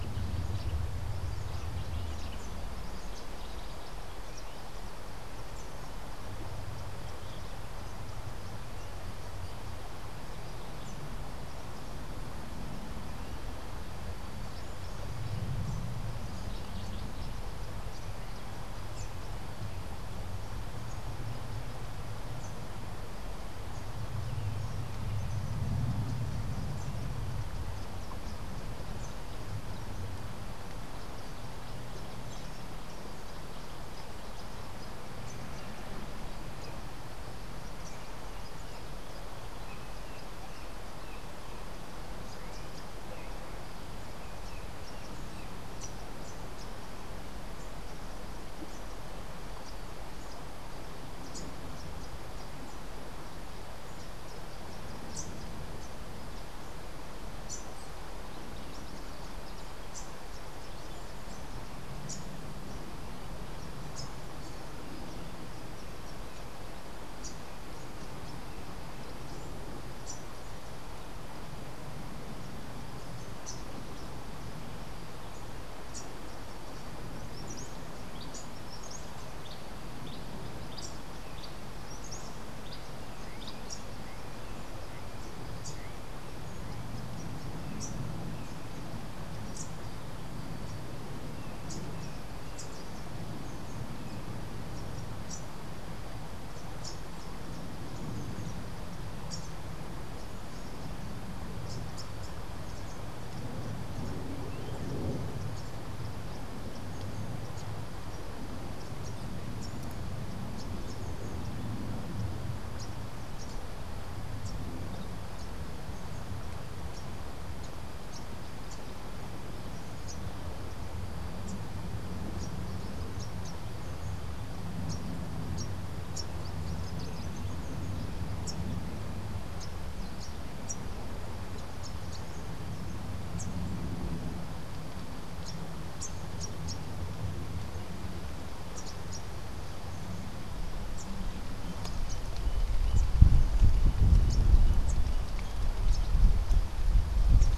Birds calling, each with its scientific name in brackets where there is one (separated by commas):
Cabanis's Wren (Cantorchilus modestus), Rufous-capped Warbler (Basileuterus rufifrons)